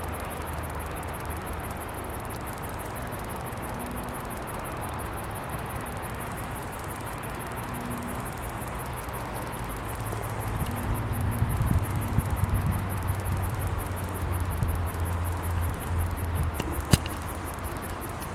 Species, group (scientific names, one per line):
Clinopsalta autumna
Cicadidae